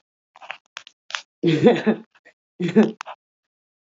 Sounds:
Laughter